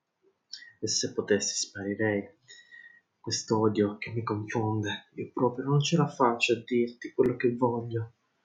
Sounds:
Sigh